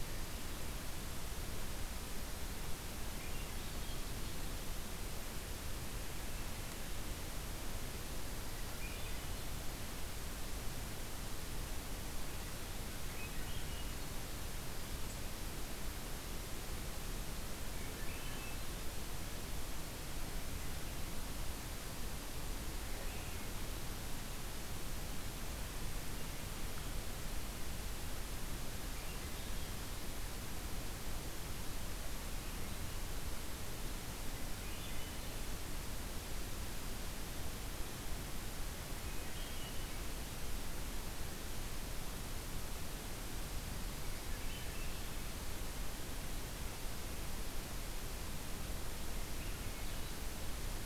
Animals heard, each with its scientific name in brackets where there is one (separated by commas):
Swainson's Thrush (Catharus ustulatus), Ovenbird (Seiurus aurocapilla)